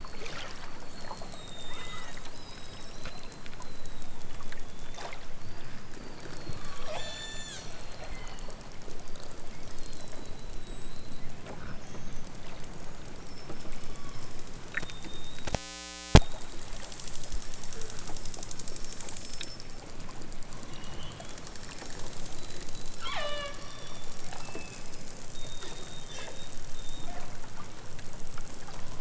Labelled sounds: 1.6	2.3	killer whale, southern Alaska resident, 0.92 to 3.4 kHz
6.4	7.7	killer whale, southern Alaska resident, 1.1 to 8.0 kHz
8.1	8.5	killer whale, southern Alaska resident, 1.1 to 3.4 kHz
11.8	12.1	killer whale, southern Alaska resident, 2.0 to 6.0 kHz
13.7	14.3	killer whale, southern Alaska resident, 0.69 to 3.7 kHz
22.9	23.6	killer whale, southern Alaska resident, 0.37 to 6.8 kHz

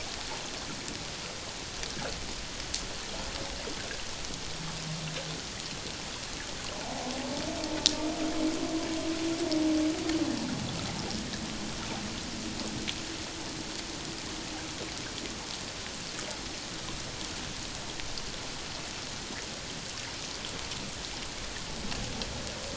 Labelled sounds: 6.8	7.1	humpback whale, 0.78 to 0.91 kHz

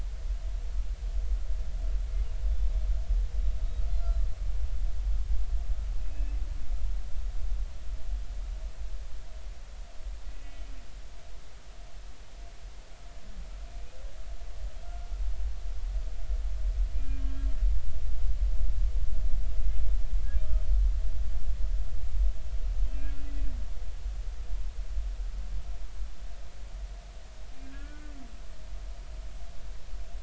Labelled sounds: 7.0	7.4	humpback whale, 2.5 to 2.7 kHz
10.3	10.7	humpback whale, 2.2 to 3.1 kHz
16.9	17.5	humpback whale, 1.6 to 3.3 kHz
22.9	23.3	humpback whale, 2.3 to 2.6 kHz
27.6	28.1	humpback whale, 1.1 to 1.8 kHz

